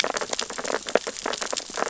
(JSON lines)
{"label": "biophony, sea urchins (Echinidae)", "recorder": "SoundTrap 600 or HydroMoth"}